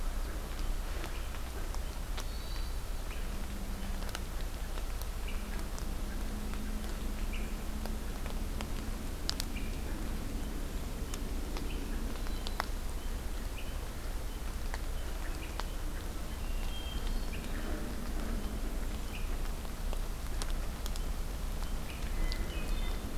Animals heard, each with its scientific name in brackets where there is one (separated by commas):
Red-winged Blackbird (Agelaius phoeniceus), Hermit Thrush (Catharus guttatus)